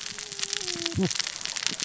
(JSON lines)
{"label": "biophony, cascading saw", "recorder": "SoundTrap 600 or HydroMoth"}